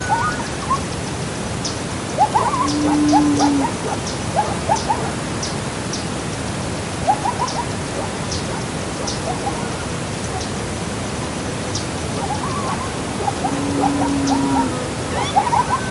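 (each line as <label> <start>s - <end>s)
A bird chirps loudly. 0.0s - 1.6s
A coyote howls loudly nearby. 2.1s - 5.2s
A bird chirps. 3.1s - 7.0s
A coyote howls. 7.0s - 7.7s
A bird chirps. 7.8s - 12.2s
A coyote howls. 12.2s - 15.9s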